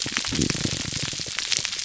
{"label": "biophony, pulse", "recorder": "SoundTrap 300"}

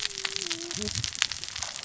{"label": "biophony, cascading saw", "recorder": "SoundTrap 600 or HydroMoth"}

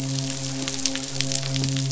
{"label": "biophony, midshipman", "recorder": "SoundTrap 500"}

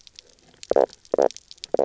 {"label": "biophony, knock croak", "recorder": "SoundTrap 300"}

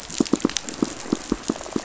{"label": "biophony, pulse", "recorder": "SoundTrap 500"}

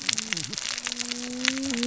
{"label": "biophony, cascading saw", "recorder": "SoundTrap 600 or HydroMoth"}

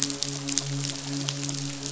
{"label": "biophony, midshipman", "recorder": "SoundTrap 500"}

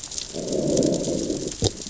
{"label": "biophony, growl", "recorder": "SoundTrap 600 or HydroMoth"}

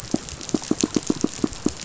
{"label": "biophony, pulse", "recorder": "SoundTrap 500"}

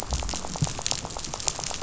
{"label": "biophony, rattle", "recorder": "SoundTrap 500"}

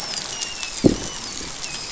{"label": "biophony, dolphin", "recorder": "SoundTrap 500"}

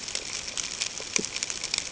{"label": "ambient", "recorder": "HydroMoth"}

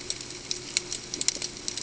{"label": "ambient", "recorder": "HydroMoth"}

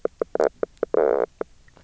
{"label": "biophony, knock croak", "recorder": "SoundTrap 300"}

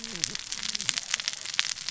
{"label": "biophony, cascading saw", "recorder": "SoundTrap 600 or HydroMoth"}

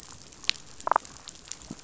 {"label": "biophony, damselfish", "recorder": "SoundTrap 500"}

